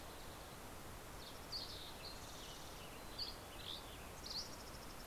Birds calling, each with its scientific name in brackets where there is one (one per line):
Western Tanager (Piranga ludoviciana)
Dusky Flycatcher (Empidonax oberholseri)
Yellow-rumped Warbler (Setophaga coronata)
Mountain Chickadee (Poecile gambeli)
Fox Sparrow (Passerella iliaca)